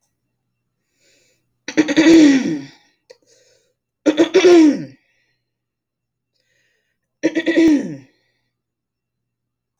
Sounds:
Throat clearing